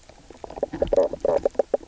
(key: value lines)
label: biophony, knock croak
recorder: SoundTrap 300